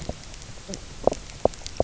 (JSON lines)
{"label": "biophony, knock croak", "recorder": "SoundTrap 300"}